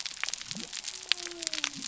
{"label": "biophony", "recorder": "SoundTrap 300"}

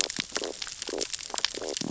{"label": "biophony, stridulation", "recorder": "SoundTrap 600 or HydroMoth"}
{"label": "biophony, sea urchins (Echinidae)", "recorder": "SoundTrap 600 or HydroMoth"}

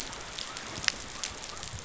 {"label": "biophony", "recorder": "SoundTrap 500"}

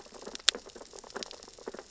{"label": "biophony, sea urchins (Echinidae)", "recorder": "SoundTrap 600 or HydroMoth"}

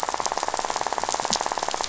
{"label": "biophony, rattle", "recorder": "SoundTrap 500"}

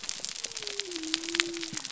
{"label": "biophony", "recorder": "SoundTrap 300"}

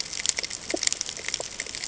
{"label": "ambient", "recorder": "HydroMoth"}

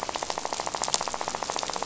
{"label": "biophony, rattle", "recorder": "SoundTrap 500"}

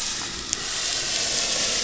{"label": "anthrophony, boat engine", "recorder": "SoundTrap 500"}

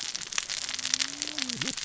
{"label": "biophony, cascading saw", "recorder": "SoundTrap 600 or HydroMoth"}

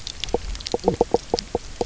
{"label": "biophony, knock croak", "recorder": "SoundTrap 300"}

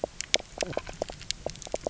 {"label": "biophony, knock croak", "recorder": "SoundTrap 300"}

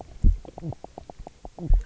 {"label": "biophony, knock croak", "recorder": "SoundTrap 300"}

